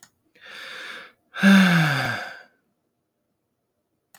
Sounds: Sigh